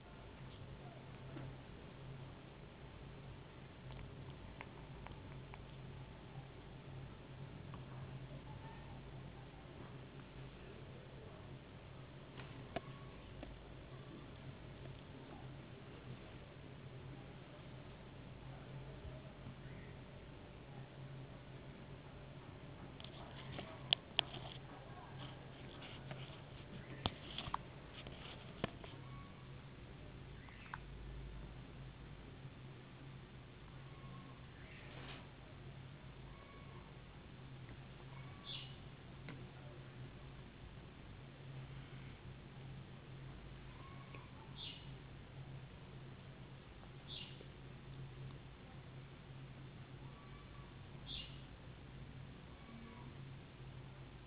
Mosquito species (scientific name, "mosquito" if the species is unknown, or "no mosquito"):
no mosquito